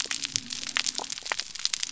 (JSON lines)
{"label": "biophony", "recorder": "SoundTrap 300"}